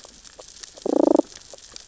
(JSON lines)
{"label": "biophony, damselfish", "recorder": "SoundTrap 600 or HydroMoth"}